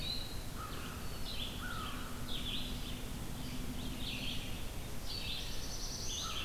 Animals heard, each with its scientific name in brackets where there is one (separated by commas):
American Crow (Corvus brachyrhynchos), Red-eyed Vireo (Vireo olivaceus), Black-throated Blue Warbler (Setophaga caerulescens)